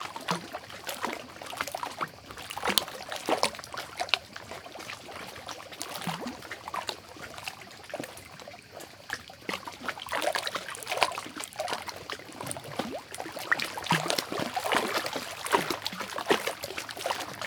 Does the splashing stop suddenly?
no